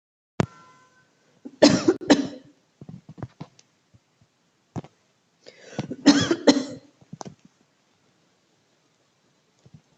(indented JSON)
{
  "expert_labels": [
    {
      "quality": "good",
      "cough_type": "dry",
      "dyspnea": false,
      "wheezing": false,
      "stridor": false,
      "choking": false,
      "congestion": false,
      "nothing": true,
      "diagnosis": "upper respiratory tract infection",
      "severity": "mild"
    }
  ],
  "age": 49,
  "gender": "female",
  "respiratory_condition": false,
  "fever_muscle_pain": false,
  "status": "healthy"
}